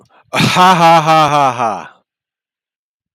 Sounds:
Laughter